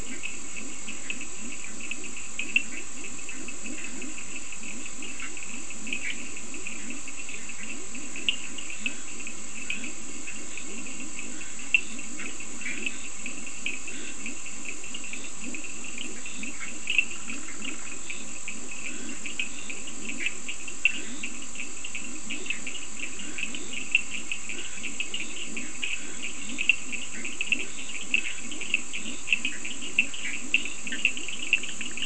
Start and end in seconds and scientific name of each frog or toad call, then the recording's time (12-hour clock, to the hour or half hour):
0.0	32.0	Leptodactylus latrans
0.0	32.0	Sphaenorhynchus surdus
2.7	2.9	Boana bischoffi
5.2	7.8	Boana bischoffi
9.3	31.2	Scinax perereca
12.1	12.9	Boana bischoffi
27.3	32.0	Boana bischoffi
~4am